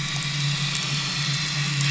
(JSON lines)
{"label": "anthrophony, boat engine", "recorder": "SoundTrap 500"}